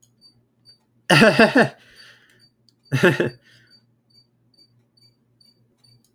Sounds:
Laughter